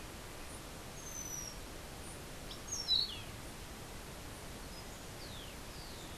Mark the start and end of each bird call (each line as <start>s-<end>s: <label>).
2.4s-3.3s: Orange-billed Nightingale-Thrush (Catharus aurantiirostris)